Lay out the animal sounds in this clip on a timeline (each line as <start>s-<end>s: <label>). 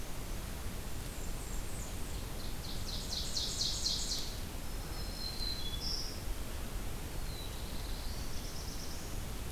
0.8s-2.2s: Blackburnian Warbler (Setophaga fusca)
2.5s-4.6s: Ovenbird (Seiurus aurocapilla)
4.8s-6.3s: Black-throated Green Warbler (Setophaga virens)
7.1s-9.4s: Black-throated Blue Warbler (Setophaga caerulescens)